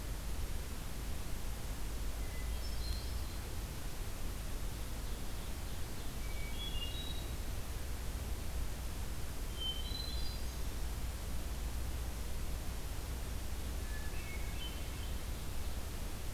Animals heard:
Hermit Thrush (Catharus guttatus)
Ovenbird (Seiurus aurocapilla)

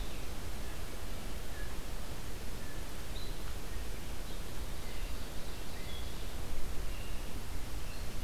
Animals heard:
Red-eyed Vireo (Vireo olivaceus)
Ovenbird (Seiurus aurocapilla)

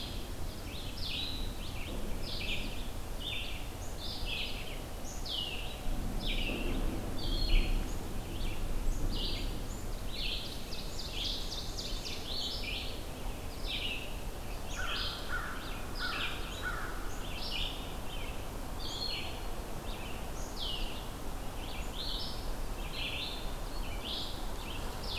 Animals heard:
Black-capped Chickadee (Poecile atricapillus)
Red-eyed Vireo (Vireo olivaceus)
Ovenbird (Seiurus aurocapilla)
American Crow (Corvus brachyrhynchos)

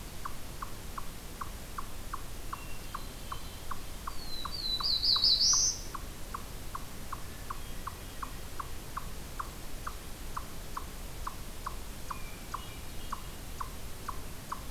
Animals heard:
Hermit Thrush (Catharus guttatus)
Eastern Chipmunk (Tamias striatus)
Black-throated Blue Warbler (Setophaga caerulescens)

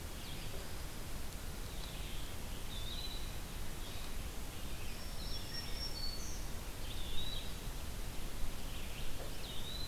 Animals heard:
Eastern Wood-Pewee (Contopus virens)
Black-throated Green Warbler (Setophaga virens)
Red-eyed Vireo (Vireo olivaceus)

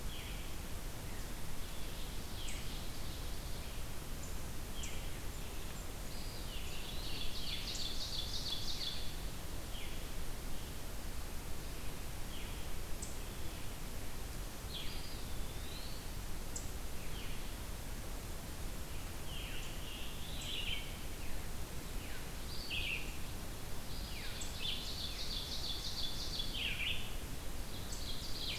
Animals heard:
Blackburnian Warbler (Setophaga fusca)
Veery (Catharus fuscescens)
Eastern Wood-Pewee (Contopus virens)
Red-eyed Vireo (Vireo olivaceus)
Scarlet Tanager (Piranga olivacea)
Ovenbird (Seiurus aurocapilla)

